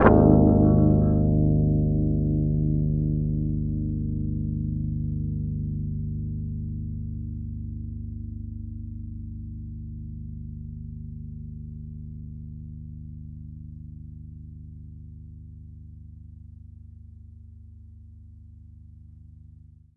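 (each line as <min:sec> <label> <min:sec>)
0:00.0 A deep, vibrating note from a string instrument. 0:20.0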